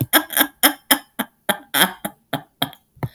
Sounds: Laughter